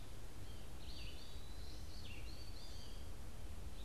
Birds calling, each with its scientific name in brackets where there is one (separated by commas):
Red-eyed Vireo (Vireo olivaceus), Eastern Wood-Pewee (Contopus virens), American Goldfinch (Spinus tristis)